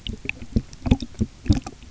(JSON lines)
{"label": "geophony, waves", "recorder": "SoundTrap 300"}